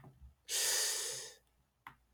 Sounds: Sigh